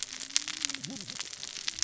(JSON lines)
{"label": "biophony, cascading saw", "recorder": "SoundTrap 600 or HydroMoth"}